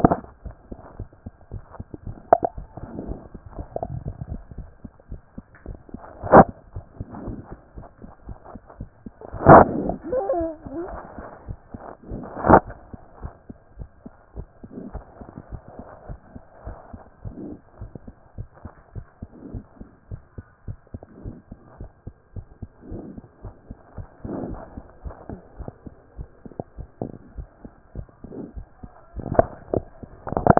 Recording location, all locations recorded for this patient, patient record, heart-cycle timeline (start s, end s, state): pulmonary valve (PV)
aortic valve (AV)+pulmonary valve (PV)+tricuspid valve (TV)+mitral valve (MV)
#Age: Child
#Sex: Female
#Height: 118.0 cm
#Weight: 25.4 kg
#Pregnancy status: False
#Murmur: Absent
#Murmur locations: nan
#Most audible location: nan
#Systolic murmur timing: nan
#Systolic murmur shape: nan
#Systolic murmur grading: nan
#Systolic murmur pitch: nan
#Systolic murmur quality: nan
#Diastolic murmur timing: nan
#Diastolic murmur shape: nan
#Diastolic murmur grading: nan
#Diastolic murmur pitch: nan
#Diastolic murmur quality: nan
#Outcome: Normal
#Campaign: 2014 screening campaign
0.00	13.48	unannotated
13.48	13.58	S2
13.58	13.78	diastole
13.78	13.88	S1
13.88	14.04	systole
14.04	14.14	S2
14.14	14.36	diastole
14.36	14.46	S1
14.46	14.62	systole
14.62	14.70	S2
14.70	14.94	diastole
14.94	15.04	S1
15.04	15.20	systole
15.20	15.28	S2
15.28	15.50	diastole
15.50	15.62	S1
15.62	15.78	systole
15.78	15.86	S2
15.86	16.08	diastole
16.08	16.20	S1
16.20	16.34	systole
16.34	16.42	S2
16.42	16.66	diastole
16.66	16.76	S1
16.76	16.92	systole
16.92	17.00	S2
17.00	17.24	diastole
17.24	17.36	S1
17.36	17.48	systole
17.48	17.58	S2
17.58	17.80	diastole
17.80	17.90	S1
17.90	18.06	systole
18.06	18.14	S2
18.14	18.36	diastole
18.36	18.48	S1
18.48	18.64	systole
18.64	18.72	S2
18.72	18.94	diastole
18.94	19.06	S1
19.06	19.20	systole
19.20	19.30	S2
19.30	19.52	diastole
19.52	19.64	S1
19.64	19.80	systole
19.80	19.88	S2
19.88	20.10	diastole
20.10	20.20	S1
20.20	20.36	systole
20.36	20.46	S2
20.46	20.66	diastole
20.66	20.78	S1
20.78	20.92	systole
20.92	21.02	S2
21.02	21.24	diastole
21.24	21.36	S1
21.36	21.50	systole
21.50	21.58	S2
21.58	21.80	diastole
21.80	21.90	S1
21.90	22.06	systole
22.06	22.14	S2
22.14	22.34	diastole
22.34	22.46	S1
22.46	22.60	systole
22.60	22.70	S2
22.70	22.90	diastole
22.90	23.04	S1
23.04	23.16	systole
23.16	23.24	S2
23.24	23.44	diastole
23.44	23.54	S1
23.54	23.68	systole
23.68	23.78	S2
23.78	24.00	diastole
24.00	24.08	S1
24.08	24.24	systole
24.24	24.34	S2
24.34	24.46	diastole
24.46	24.60	S1
24.60	24.76	systole
24.76	24.82	S2
24.82	25.04	diastole
25.04	25.16	S1
25.16	25.30	systole
25.30	25.40	S2
25.40	25.58	diastole
25.58	25.70	S1
25.70	25.86	systole
25.86	25.94	S2
25.94	26.18	diastole
26.18	26.28	S1
26.28	26.44	systole
26.44	26.54	S2
26.54	26.78	diastole
26.78	26.88	S1
26.88	27.02	systole
27.02	27.12	S2
27.12	27.34	diastole
27.34	30.59	unannotated